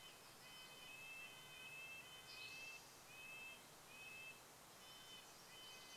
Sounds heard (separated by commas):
warbler song, Pacific Wren song, Red-breasted Nuthatch song, Spotted Towhee song